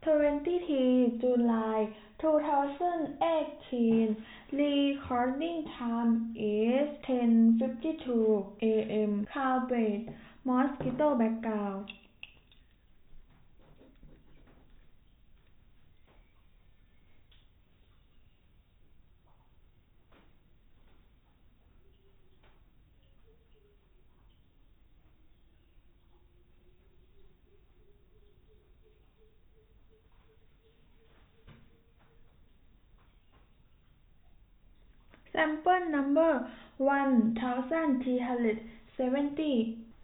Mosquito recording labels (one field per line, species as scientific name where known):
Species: no mosquito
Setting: cup